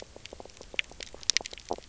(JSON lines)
{"label": "biophony, knock croak", "recorder": "SoundTrap 300"}